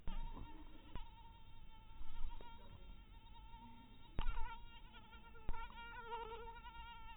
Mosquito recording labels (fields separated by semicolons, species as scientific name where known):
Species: mosquito; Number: one; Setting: cup